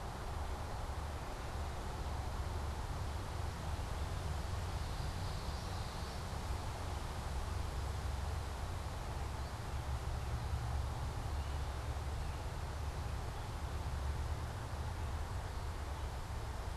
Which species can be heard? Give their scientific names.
Geothlypis trichas, Turdus migratorius